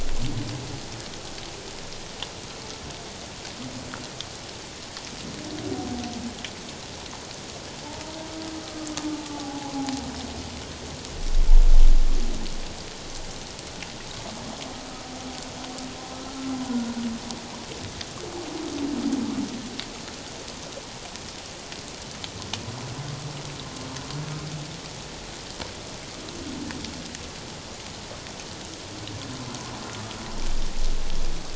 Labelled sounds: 8.6	10.1	humpback whale, 0.78 to 1.3 kHz
16.7	16.9	humpback whale, 1.4 to 1.5 kHz

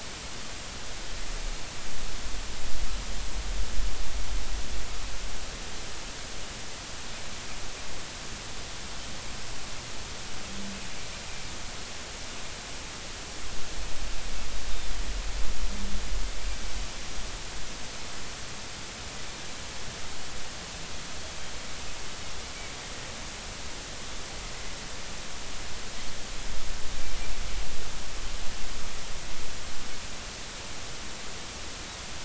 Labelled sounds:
14.7	14.9	Pacific white-sided dolphin, 3.5 to 3.7 kHz

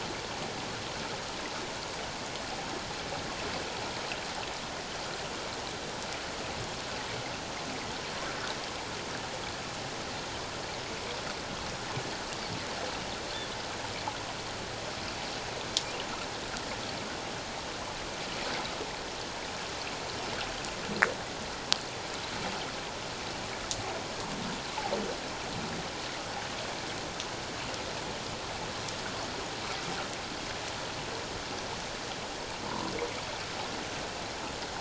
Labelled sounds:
32.7	32.9	humpback whale, 0.88 to 1.1 kHz

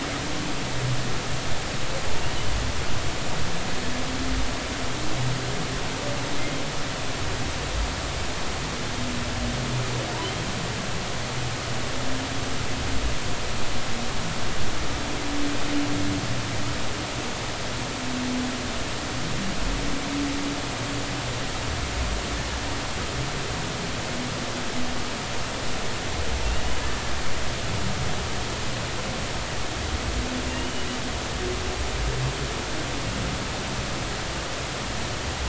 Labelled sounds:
30.5	30.9	humpback whale, 2.7 to 3.0 kHz

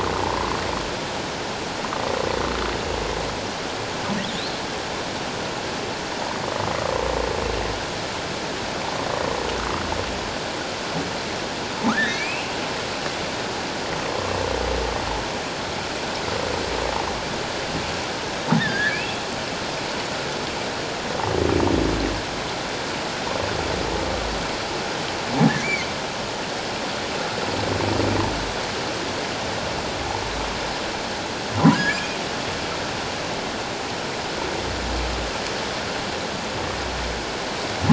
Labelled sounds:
11.9	12.5	humpback whale, 1.1 to 3.9 kHz
18.6	19.2	humpback whale, 1.5 to 2.8 kHz
25.6	25.9	humpback whale, 2.0 to 2.4 kHz
31.7	32.2	humpback whale, 1.3 to 2.6 kHz

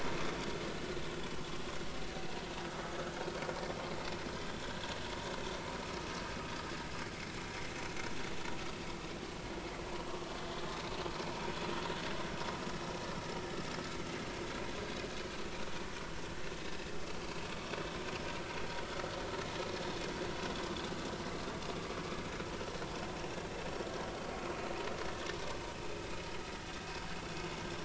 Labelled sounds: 4.4	4.7	vessel noise, 3.4 to 3.6 kHz

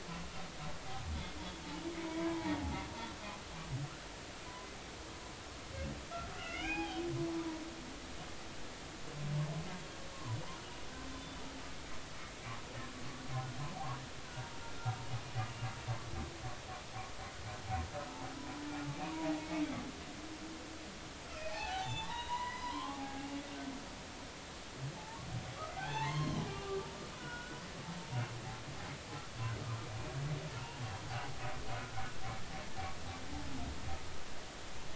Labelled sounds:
2.0	2.5	humpback whale, 0.80 to 1.1 kHz
6.3	7.1	humpback whale, 0.80 to 3.3 kHz
7.3	7.6	humpback whale, 0.93 to 1.0 kHz
10.1	10.4	humpback whale, 0.93 to 1.1 kHz
11.1	11.4	humpback whale, 3.5 to 3.6 kHz
14.2	14.5	humpback whale, 1.4 to 1.6 kHz
19.0	19.3	humpback whale, 0.90 to 1.0 kHz
21.4	23.3	humpback whale, 0.80 to 7.3 kHz
25.0	27.6	humpback whale, 0.80 to 4.3 kHz

